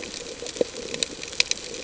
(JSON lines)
{"label": "ambient", "recorder": "HydroMoth"}